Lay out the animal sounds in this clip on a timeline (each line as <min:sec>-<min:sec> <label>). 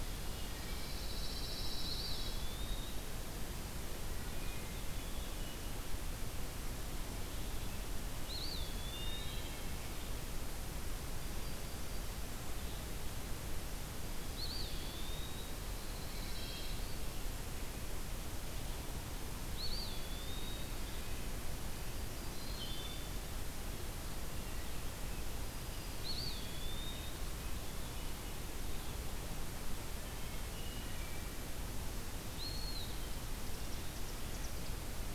0:00.1-0:00.8 Wood Thrush (Hylocichla mustelina)
0:00.7-0:02.6 Pine Warbler (Setophaga pinus)
0:01.6-0:03.5 Eastern Wood-Pewee (Contopus virens)
0:03.9-0:05.7 Wood Thrush (Hylocichla mustelina)
0:08.2-0:09.5 Eastern Wood-Pewee (Contopus virens)
0:08.9-0:09.7 Wood Thrush (Hylocichla mustelina)
0:11.0-0:12.2 Yellow-rumped Warbler (Setophaga coronata)
0:14.1-0:15.7 Eastern Wood-Pewee (Contopus virens)
0:15.7-0:17.0 Pine Warbler (Setophaga pinus)
0:16.1-0:16.8 Wood Thrush (Hylocichla mustelina)
0:19.4-0:21.0 Eastern Wood-Pewee (Contopus virens)
0:21.9-0:23.0 Yellow-rumped Warbler (Setophaga coronata)
0:22.2-0:23.3 Wood Thrush (Hylocichla mustelina)
0:25.9-0:27.4 Eastern Wood-Pewee (Contopus virens)
0:29.9-0:31.5 Wood Thrush (Hylocichla mustelina)
0:32.2-0:33.0 Eastern Wood-Pewee (Contopus virens)
0:32.9-0:34.8 Chimney Swift (Chaetura pelagica)